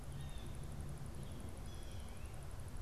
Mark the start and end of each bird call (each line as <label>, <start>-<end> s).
Blue Jay (Cyanocitta cristata), 0.0-2.8 s